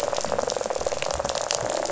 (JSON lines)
{"label": "biophony, rattle", "recorder": "SoundTrap 500"}